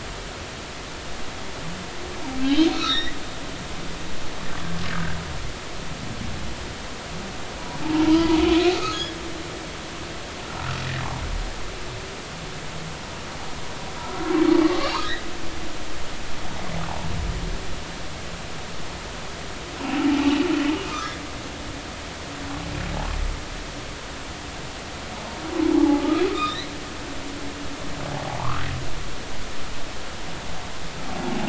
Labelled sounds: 2.5	3.2	humpback whale, 1.2 to 4.4 kHz
3.8	4.1	humpback whale, 5.4 to 5.8 kHz
8.8	9.2	humpback whale, 1.6 to 6.8 kHz
14.0	14.3	humpback whale, 1.2 to 1.4 kHz
14.8	15.1	humpback whale, 4.4 to 4.8 kHz
20.2	20.4	humpback whale, 2.3 to 2.8 kHz
20.8	21.1	humpback whale, 1.2 to 1.4 kHz
25.7	26.7	humpback whale, 0.80 to 4.3 kHz
28.3	28.7	humpback whale, 0.80 to 1.6 kHz

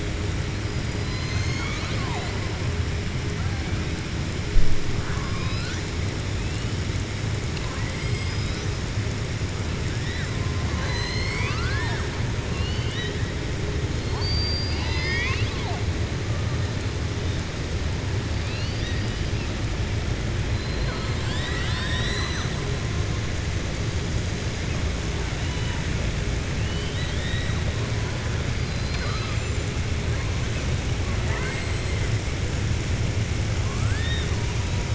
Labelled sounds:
0.9	2.4	killer whale, southern resident, 0.57 to 6.8 kHz
10.6	12.1	killer whale, southern resident, 0.65 to 7.9 kHz
12.4	13.2	killer whale, southern resident, 1.9 to 4.6 kHz
14.0	15.8	killer whale, southern resident, 0.73 to 6.3 kHz
20.5	22.5	killer whale, southern resident, 1.0 to 7.8 kHz
26.5	27.5	killer whale, southern resident, 1.8 to 4.3 kHz
28.5	29.4	killer whale, southern resident, 0.71 to 5.1 kHz
31.1	31.7	killer whale, southern resident, 0.63 to 2.8 kHz
33.6	34.3	killer whale, southern resident, 1.0 to 4.6 kHz

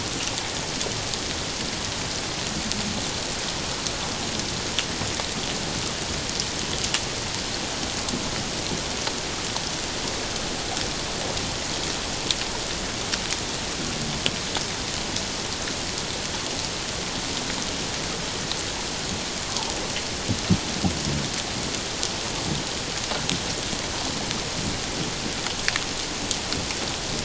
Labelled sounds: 19.5	19.7	water noise, 0.78 to 1.1 kHz

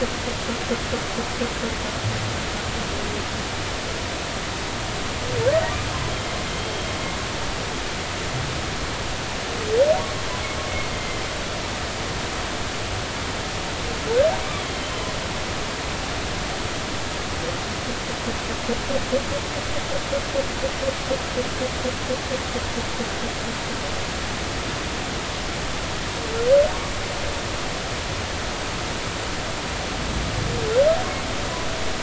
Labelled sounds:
6.5	6.9	humpback whale, 3.1 to 3.3 kHz
10.9	11.2	humpback whale, 2.0 to 2.1 kHz
14.6	15.1	humpback whale, 3.0 to 3.4 kHz

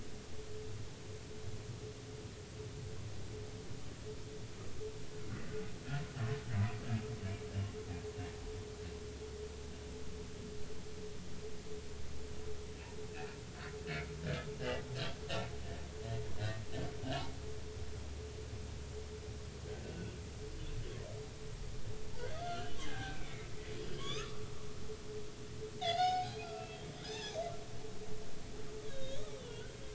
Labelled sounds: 14.6	14.8	humpback whale, 2.7 to 3.1 kHz
19.8	20.1	humpback whale, 1.4 to 1.6 kHz
22.2	24.4	humpback whale, 0.80 to 4.5 kHz
25.8	27.4	humpback whale, 0.80 to 5.3 kHz
28.9	29.7	humpback whale, 1.4 to 3.9 kHz

